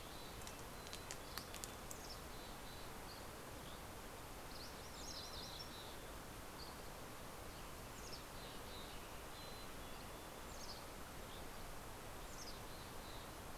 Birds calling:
Red-breasted Nuthatch (Sitta canadensis), MacGillivray's Warbler (Geothlypis tolmiei), Western Tanager (Piranga ludoviciana), Mountain Chickadee (Poecile gambeli), Dusky Flycatcher (Empidonax oberholseri)

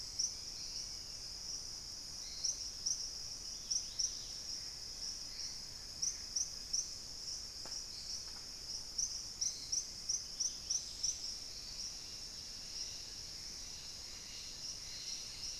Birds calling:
White-crested Spadebill (Platyrinchus platyrhynchos), Dusky-capped Greenlet (Pachysylvia hypoxantha), Gray Antbird (Cercomacra cinerascens)

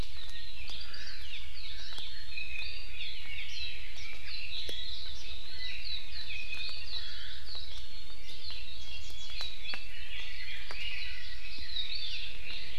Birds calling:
Warbling White-eye (Zosterops japonicus), Red-billed Leiothrix (Leiothrix lutea)

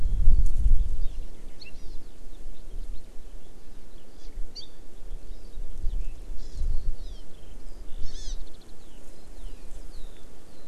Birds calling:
Eurasian Skylark (Alauda arvensis), Hawaii Amakihi (Chlorodrepanis virens)

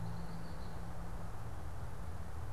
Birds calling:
Red-winged Blackbird (Agelaius phoeniceus)

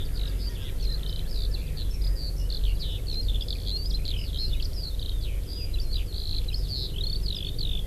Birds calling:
Eurasian Skylark (Alauda arvensis), Erckel's Francolin (Pternistis erckelii)

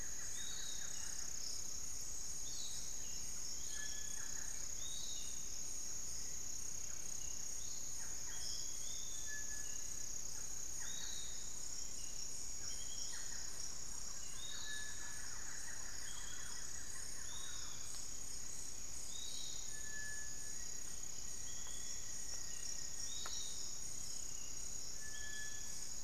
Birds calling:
Piratic Flycatcher (Legatus leucophaius), Barred Forest-Falcon (Micrastur ruficollis), Thrush-like Wren (Campylorhynchus turdinus), Buff-throated Woodcreeper (Xiphorhynchus guttatus), unidentified bird, Black-faced Antthrush (Formicarius analis), Cinereous Tinamou (Crypturellus cinereus)

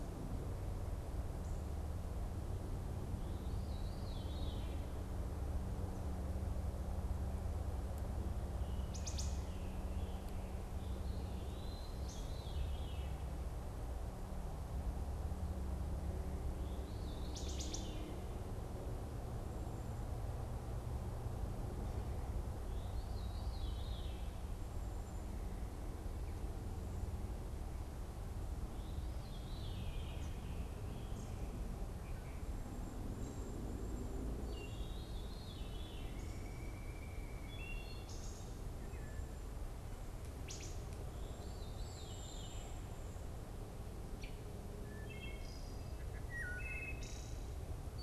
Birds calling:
Wood Thrush (Hylocichla mustelina), Cedar Waxwing (Bombycilla cedrorum), Veery (Catharus fuscescens)

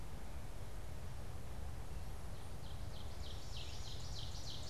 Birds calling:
Ovenbird (Seiurus aurocapilla)

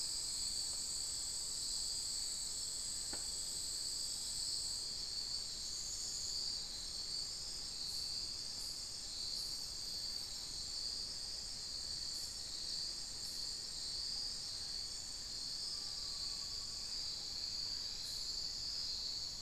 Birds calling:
unidentified bird, Amazonian Pygmy-Owl (Glaucidium hardyi)

